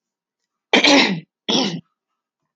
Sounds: Throat clearing